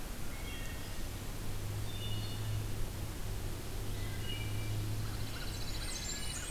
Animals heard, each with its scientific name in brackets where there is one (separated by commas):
Scarlet Tanager (Piranga olivacea), American Crow (Corvus brachyrhynchos), Blackburnian Warbler (Setophaga fusca), Wood Thrush (Hylocichla mustelina), Pine Warbler (Setophaga pinus)